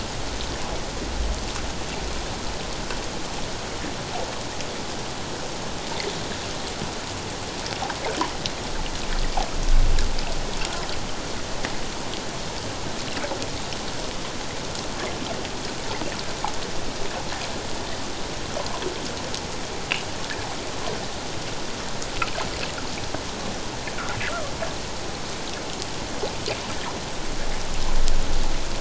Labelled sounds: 24.3	24.5	fish, 1.1 to 1.6 kHz

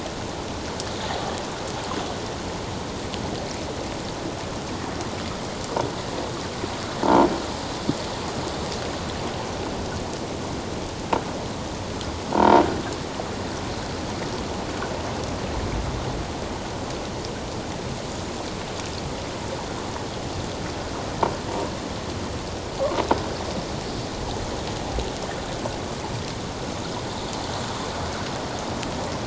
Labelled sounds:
7.0	7.3	croaking sound likely from a nearby submerged object, 0.84 to 1.0 kHz
12.3	12.6	croaking sound likely from a nearby submerged object, 0.88 to 1.5 kHz

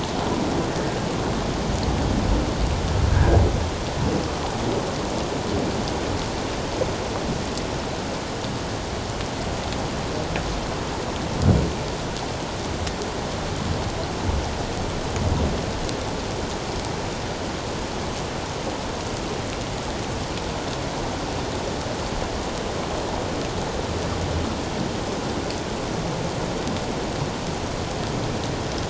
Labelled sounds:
3.1	3.4	humpback whale, 1.5 to 1.8 kHz

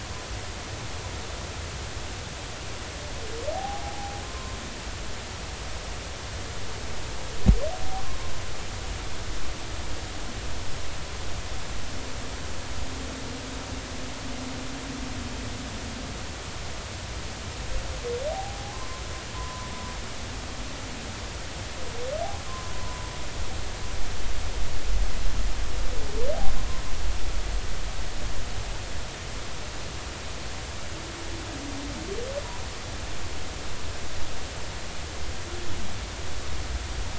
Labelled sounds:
3.5	4.6	humpback whale, 0.80 to 1.1 kHz
8.0	8.3	humpback whale, 0.93 to 1.1 kHz
18.3	19.0	humpback whale, 0.80 to 1.1 kHz
19.3	19.7	humpback whale, 0.96 to 1.1 kHz
22.5	23.1	humpback whale, 0.90 to 1.1 kHz

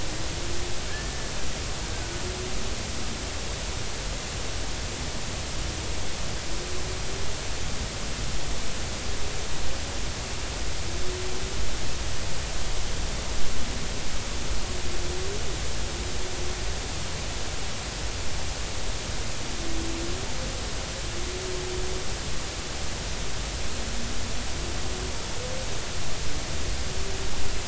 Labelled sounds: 0.9	1.3	killer whale, Bigg's (transient), 1.6 to 1.8 kHz

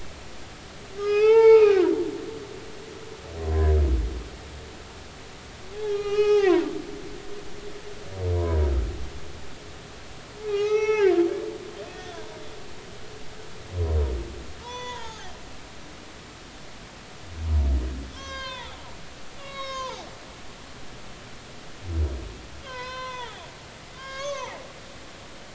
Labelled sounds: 1.0	1.9	humpback whale, 0.80 to 5.4 kHz
3.4	3.7	humpback whale, 0.96 to 1.1 kHz
5.7	6.7	humpback whale, 0.80 to 6.4 kHz
8.3	8.6	humpback whale, 0.93 to 1.1 kHz
10.4	12.1	humpback whale, 0.80 to 6.1 kHz
14.6	15.3	humpback whale, 0.80 to 6.0 kHz
18.1	18.8	humpback whale, 0.86 to 6.0 kHz
19.4	20.0	humpback whale, 0.80 to 6.6 kHz
22.6	23.3	humpback whale, 0.86 to 5.7 kHz
24.0	24.6	humpback whale, 0.80 to 6.4 kHz

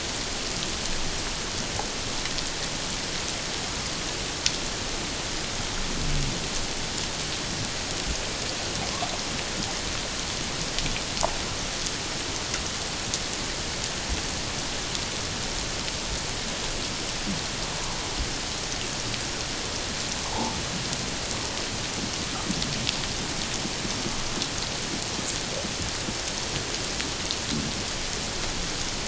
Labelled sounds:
20.3	20.6	humpback whale, 0.78 to 1.0 kHz

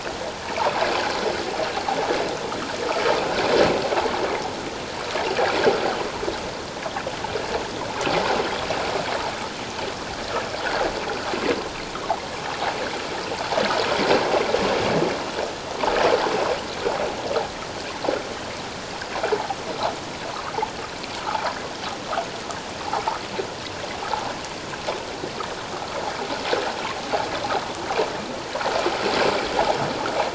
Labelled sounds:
21.3	21.6	water noise, 0.78 to 1.1 kHz

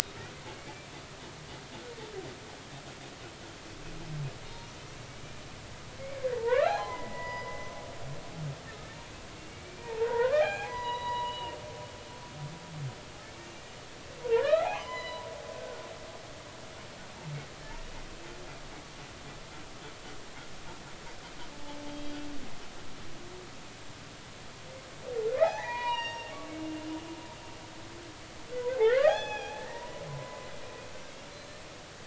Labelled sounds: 0.5	0.9	humpback whale, 2.2 to 2.4 kHz
4.5	4.7	humpback whale, 3.6 to 3.8 kHz
6.3	7.7	humpback whale, 0.80 to 5.0 kHz
8.7	8.9	humpback whale, 1.2 to 1.4 kHz
9.6	11.6	humpback whale, 0.80 to 4.0 kHz
13.2	13.5	humpback whale, 2.2 to 2.4 kHz
14.2	15.3	humpback whale, 0.80 to 5.1 kHz
15.5	15.9	humpback whale, 1.4 to 1.6 kHz
21.9	22.2	humpback whale, 3.1 to 3.3 kHz
25.4	26.3	humpback whale, 0.80 to 6.1 kHz
28.8	30.5	humpback whale, 0.80 to 6.1 kHz
31.0	31.6	humpback whale, 2.6 to 4.2 kHz

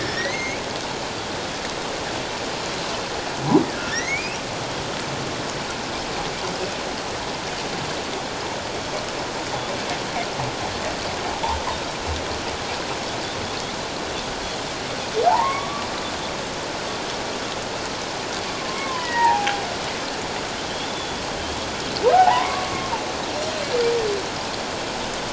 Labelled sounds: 0.0	0.6	humpback whale, 1.7 to 6.6 kHz
3.9	4.4	humpback whale, 1.7 to 6.6 kHz
15.2	15.9	humpback whale, 0.78 to 2.3 kHz
18.4	19.6	humpback whale, 0.78 to 2.0 kHz
20.9	21.2	Pacific white-sided dolphin, 3.4 to 3.5 kHz
22.1	22.9	humpback whale, 0.78 to 1.2 kHz
23.3	23.7	Pacific white-sided dolphin, 4.1 to 4.2 kHz

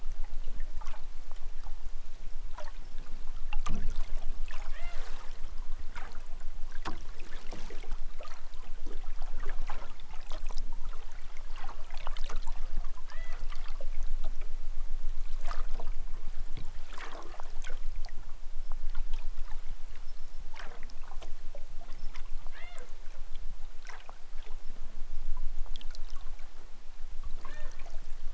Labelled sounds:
4.6	5.1	killer whale, southern Alaska resident, 0.18 to 6.1 kHz
13.0	13.4	killer whale, southern Alaska resident, 0.23 to 5.3 kHz
22.4	22.9	killer whale, southern Alaska resident, 0.18 to 5.4 kHz
27.4	27.8	killer whale, southern Alaska resident, 0.18 to 4.6 kHz

